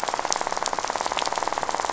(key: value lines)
label: biophony, rattle
recorder: SoundTrap 500